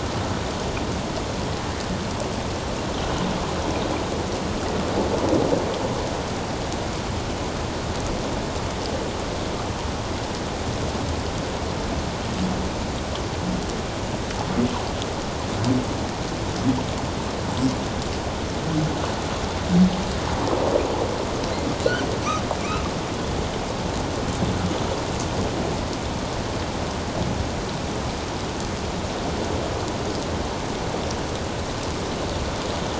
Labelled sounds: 22.6	22.8	humpback whale, 2.1 to 2.8 kHz

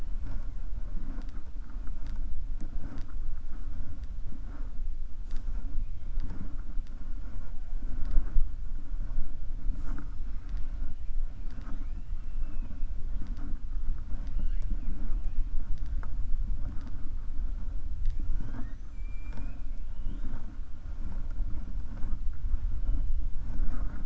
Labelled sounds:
12.2	12.8	killer whale, 2.5 to 3.0 kHz

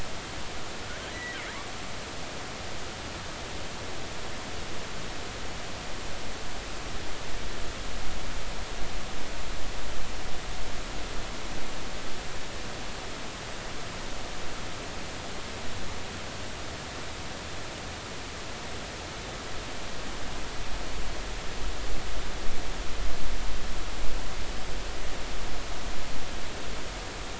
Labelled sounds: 1.1	1.4	killer whale, offshore, 1.7 to 2.0 kHz

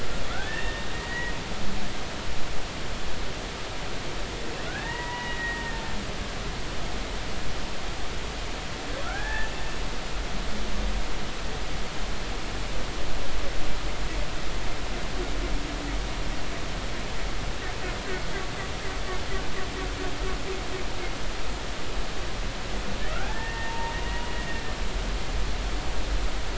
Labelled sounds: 0.3	1.4	humpback whale, 1.3 to 3.7 kHz
4.7	5.8	humpback whale, 0.86 to 2.9 kHz
9.0	9.5	humpback whale, 0.80 to 1.9 kHz
23.3	23.9	humpback whale, 0.86 to 1.9 kHz

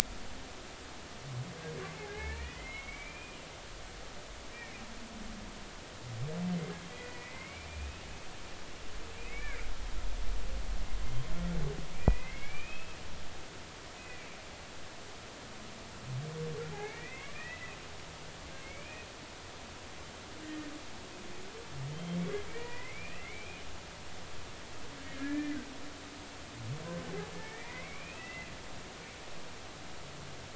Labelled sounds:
2.0	3.4	humpback whale, 1.6 to 3.1 kHz
4.5	4.8	humpback whale, 2.0 to 2.4 kHz
6.9	8.0	humpback whale, 1.9 to 2.6 kHz
9.2	9.6	humpback whale, 1.9 to 2.4 kHz
11.9	13.0	humpback whale, 1.6 to 2.7 kHz
14.0	14.3	humpback whale, 1.9 to 2.6 kHz
16.7	17.7	humpback whale, 0.80 to 2.7 kHz
18.6	19.1	humpback whale, 2.1 to 2.6 kHz
20.4	20.7	humpback whale, 1.8 to 1.9 kHz
21.9	23.6	humpback whale, 0.90 to 3.2 kHz
25.2	25.6	humpback whale, 1.6 to 2.4 kHz
27.3	28.5	humpback whale, 1.7 to 2.8 kHz

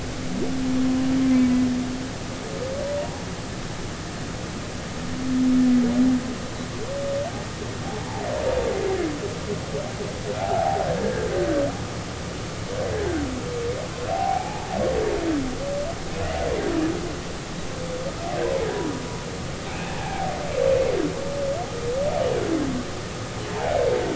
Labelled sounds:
10.4	11.3	humpback whale, 0.80 to 1.9 kHz
14.1	14.7	humpback whale, 0.80 to 2.5 kHz
19.7	20.3	humpback whale, 0.80 to 2.7 kHz

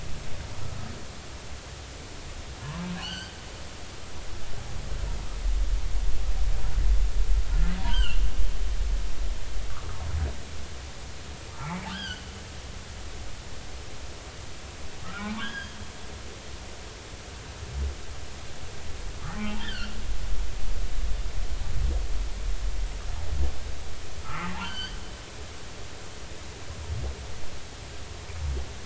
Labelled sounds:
3.0	3.4	humpback whale, 1.4 to 4.8 kHz
7.8	8.2	humpback whale, 0.90 to 3.3 kHz
11.6	12.3	humpback whale, 0.80 to 5.1 kHz
15.0	15.8	humpback whale, 1.2 to 5.1 kHz
19.2	20.0	humpback whale, 1.1 to 3.7 kHz
24.2	25.0	humpback whale, 1.0 to 4.9 kHz

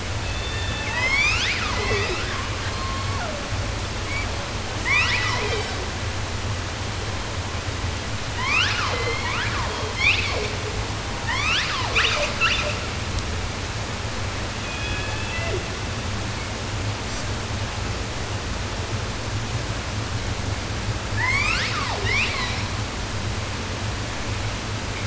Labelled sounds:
0.1	3.5	killer whale, 0.12 to 8.0 kHz
3.9	4.6	killer whale, 0.19 to 8.0 kHz
4.7	6.0	killer whale, southern resident, 0.10 to 8.0 kHz
8.3	9.9	killer whale, southern resident, 0.10 to 8.0 kHz
10.0	12.9	killer whale, 0.17 to 8.0 kHz
14.5	16.0	killer whale, southern resident, J pod, call S01, 0.12 to 4.1 kHz
17.0	17.2	killer whale, southern resident, J pod, call S05, 3.6 to 8.0 kHz
21.1	23.0	killer whale, 0.23 to 8.0 kHz

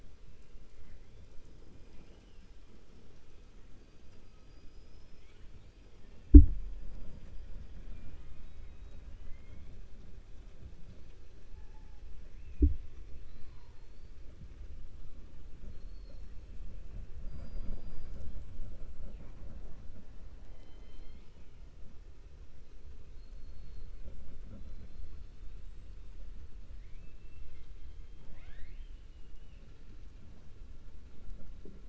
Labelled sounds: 7.8	8.4	killer whale, 0.65 to 3.6 kHz
9.1	9.7	killer whale, 1.3 to 3.3 kHz
20.4	21.5	killer whale, 2.0 to 5.1 kHz
23.1	23.9	killer whale, 3.4 to 4.4 kHz
26.7	27.7	killer whale, 1.7 to 4.7 kHz
28.0	29.7	killer whale, 0.59 to 4.4 kHz

